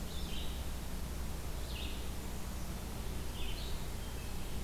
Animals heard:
Red-eyed Vireo (Vireo olivaceus), Hermit Thrush (Catharus guttatus)

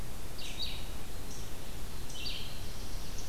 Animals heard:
Red-eyed Vireo (Vireo olivaceus), Black-throated Blue Warbler (Setophaga caerulescens), Eastern Chipmunk (Tamias striatus)

